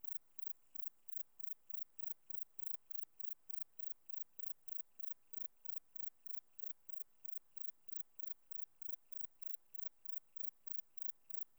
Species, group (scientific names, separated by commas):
Platycleis albopunctata, Orthoptera